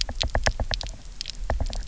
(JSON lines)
{"label": "biophony, knock", "recorder": "SoundTrap 300"}